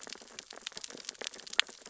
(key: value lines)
label: biophony, sea urchins (Echinidae)
recorder: SoundTrap 600 or HydroMoth